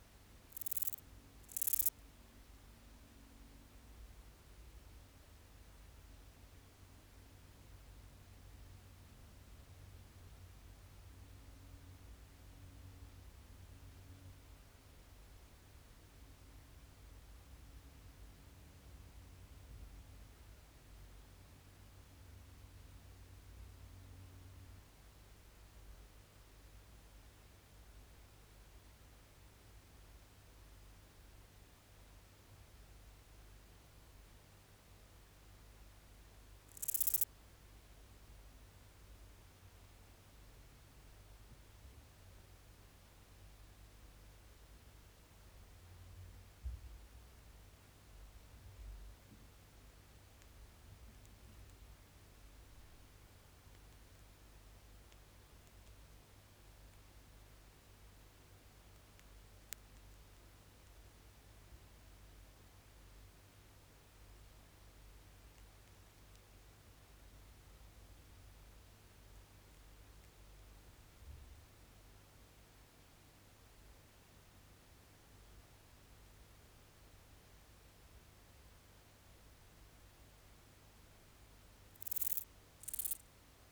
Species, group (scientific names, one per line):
Euthystira brachyptera
Orthoptera